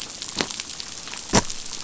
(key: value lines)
label: biophony
recorder: SoundTrap 500